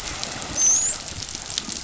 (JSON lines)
{"label": "biophony, dolphin", "recorder": "SoundTrap 500"}